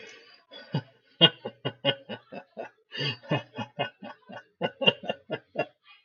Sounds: Laughter